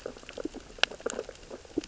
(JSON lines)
{"label": "biophony, sea urchins (Echinidae)", "recorder": "SoundTrap 600 or HydroMoth"}